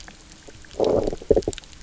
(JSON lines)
{"label": "biophony, low growl", "recorder": "SoundTrap 300"}